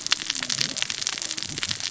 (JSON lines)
{"label": "biophony, cascading saw", "recorder": "SoundTrap 600 or HydroMoth"}